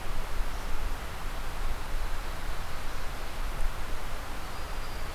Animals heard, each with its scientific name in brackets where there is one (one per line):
Black-throated Green Warbler (Setophaga virens)